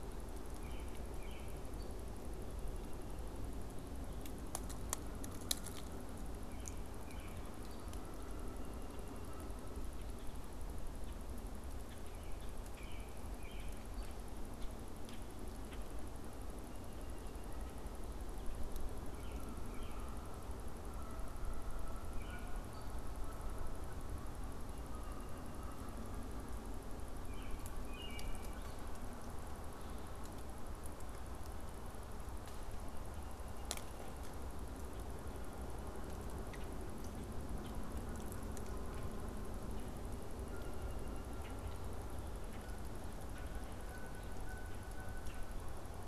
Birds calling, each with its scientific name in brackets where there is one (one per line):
Common Grackle (Quiscalus quiscula)
American Robin (Turdus migratorius)
Canada Goose (Branta canadensis)